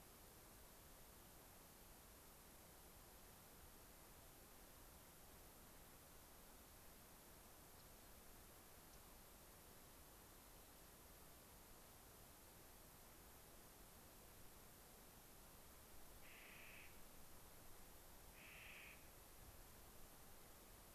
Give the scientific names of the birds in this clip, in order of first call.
Salpinctes obsoletus, Junco hyemalis, Nucifraga columbiana